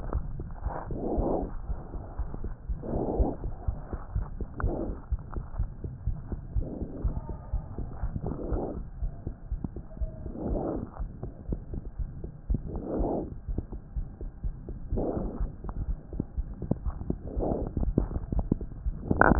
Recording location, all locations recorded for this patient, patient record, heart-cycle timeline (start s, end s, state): aortic valve (AV)
aortic valve (AV)+pulmonary valve (PV)+tricuspid valve (TV)+mitral valve (MV)
#Age: Child
#Sex: Male
#Height: 93.0 cm
#Weight: 13.4 kg
#Pregnancy status: False
#Murmur: Present
#Murmur locations: aortic valve (AV)+mitral valve (MV)+pulmonary valve (PV)+tricuspid valve (TV)
#Most audible location: tricuspid valve (TV)
#Systolic murmur timing: Holosystolic
#Systolic murmur shape: Decrescendo
#Systolic murmur grading: II/VI
#Systolic murmur pitch: Low
#Systolic murmur quality: Harsh
#Diastolic murmur timing: nan
#Diastolic murmur shape: nan
#Diastolic murmur grading: nan
#Diastolic murmur pitch: nan
#Diastolic murmur quality: nan
#Outcome: Abnormal
#Campaign: 2015 screening campaign
0.00	4.00	unannotated
4.00	4.14	diastole
4.14	4.28	S1
4.28	4.38	systole
4.38	4.48	S2
4.48	4.61	diastole
4.61	4.74	S1
4.74	4.85	systole
4.85	4.98	S2
4.98	5.10	diastole
5.10	5.21	S1
5.21	5.33	systole
5.33	5.43	S2
5.43	5.57	diastole
5.57	5.69	S1
5.69	5.80	systole
5.80	5.90	S2
5.90	6.04	diastole
6.04	6.18	S1
6.18	6.30	systole
6.30	6.40	S2
6.40	6.53	diastole
6.53	6.67	S1
6.67	6.77	systole
6.77	6.86	S2
6.86	7.02	diastole
7.02	7.16	S1
7.16	7.28	systole
7.28	7.36	S2
7.36	7.50	diastole
7.50	7.64	S1
7.64	7.75	systole
7.75	7.86	S2
7.86	8.00	diastole
8.00	8.14	S1
8.14	8.24	systole
8.24	8.36	S2
8.36	8.50	diastole
8.50	8.68	S1
8.68	8.78	systole
8.78	8.86	S2
8.86	8.99	diastole
8.99	9.12	S1
9.12	9.24	systole
9.24	9.34	S2
9.34	9.49	diastole
9.49	9.60	S1
9.60	9.73	systole
9.73	9.82	S2
9.82	9.98	diastole
9.98	10.10	S1
10.10	10.23	systole
10.23	10.32	S2
10.32	10.48	diastole
10.48	10.63	S1
10.63	10.73	systole
10.73	10.82	S2
10.82	10.97	diastole
10.97	11.10	S1
11.10	11.21	systole
11.21	11.32	S2
11.32	11.46	diastole
11.46	11.58	S1
11.58	11.70	systole
11.70	11.82	S2
11.82	11.96	diastole
11.96	12.10	S1
12.10	12.20	systole
12.20	12.30	S2
12.30	12.46	diastole
12.46	12.62	S1
12.62	12.72	systole
12.72	12.82	S2
12.82	12.94	diastole
12.94	12.96	S1
12.96	19.39	unannotated